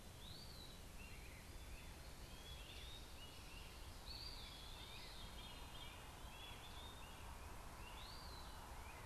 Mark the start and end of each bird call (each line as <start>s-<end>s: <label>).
0.0s-9.1s: Eastern Wood-Pewee (Contopus virens)
0.9s-9.1s: Great Crested Flycatcher (Myiarchus crinitus)
4.3s-6.1s: Veery (Catharus fuscescens)